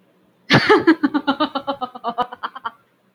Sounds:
Laughter